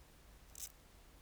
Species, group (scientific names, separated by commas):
Chorthippus dichrous, Orthoptera